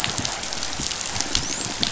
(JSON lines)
{"label": "biophony, dolphin", "recorder": "SoundTrap 500"}